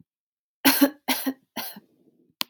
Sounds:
Cough